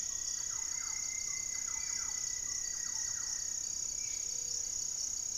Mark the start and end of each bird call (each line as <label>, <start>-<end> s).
Rufous-fronted Antthrush (Formicarius rufifrons), 0.0-3.7 s
Thrush-like Wren (Campylorhynchus turdinus), 0.0-3.7 s
Spot-winged Antshrike (Pygiptila stellaris), 0.0-4.4 s
Cobalt-winged Parakeet (Brotogeris cyanoptera), 3.9-5.4 s
Gray-fronted Dove (Leptotila rufaxilla), 4.1-4.8 s
unidentified bird, 4.3-5.4 s